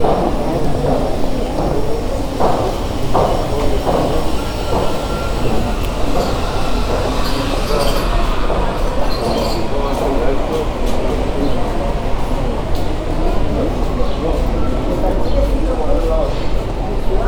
Are people singing?
no